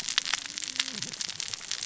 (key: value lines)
label: biophony, cascading saw
recorder: SoundTrap 600 or HydroMoth